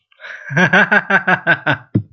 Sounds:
Laughter